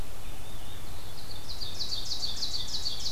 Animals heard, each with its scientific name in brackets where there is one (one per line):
Ovenbird (Seiurus aurocapilla)